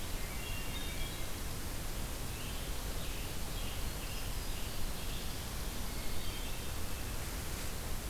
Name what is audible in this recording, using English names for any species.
Hermit Thrush, Scarlet Tanager